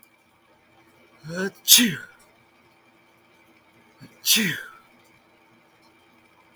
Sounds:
Sneeze